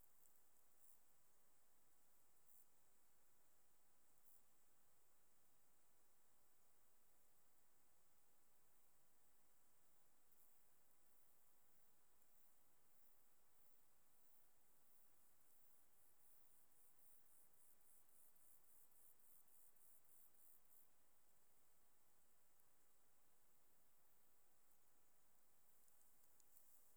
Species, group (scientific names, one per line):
Chorthippus brunneus
Orthoptera